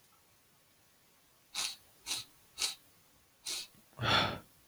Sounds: Sniff